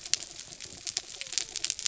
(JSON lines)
{"label": "biophony", "recorder": "SoundTrap 300"}
{"label": "anthrophony, mechanical", "recorder": "SoundTrap 300"}